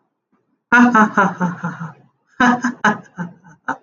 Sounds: Laughter